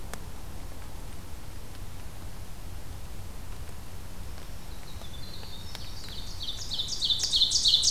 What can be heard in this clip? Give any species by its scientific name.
Troglodytes hiemalis, Seiurus aurocapilla